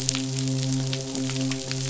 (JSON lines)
{"label": "biophony, midshipman", "recorder": "SoundTrap 500"}